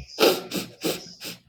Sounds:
Sniff